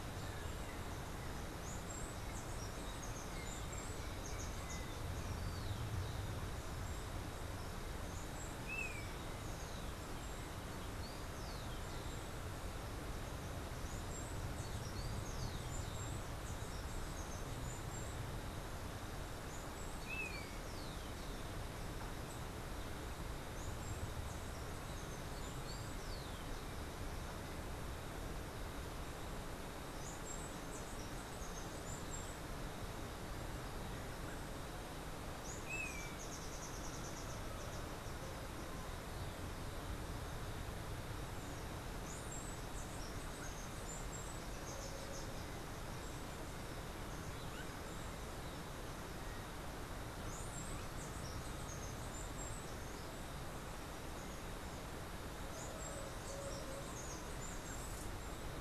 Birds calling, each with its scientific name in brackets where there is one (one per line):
unidentified bird
Rufous-collared Sparrow (Zonotrichia capensis)
Golden-faced Tyrannulet (Zimmerius chrysops)
Steely-vented Hummingbird (Saucerottia saucerottei)